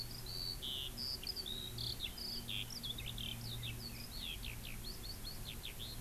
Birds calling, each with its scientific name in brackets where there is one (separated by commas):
Eurasian Skylark (Alauda arvensis)